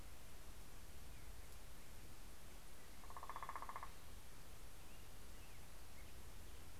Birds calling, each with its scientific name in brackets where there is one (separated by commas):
Black-headed Grosbeak (Pheucticus melanocephalus), Northern Flicker (Colaptes auratus)